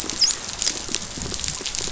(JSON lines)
{"label": "biophony, dolphin", "recorder": "SoundTrap 500"}